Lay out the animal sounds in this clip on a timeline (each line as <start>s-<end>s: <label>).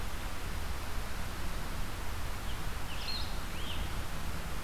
2.4s-3.8s: Scarlet Tanager (Piranga olivacea)
2.8s-4.0s: Blue-headed Vireo (Vireo solitarius)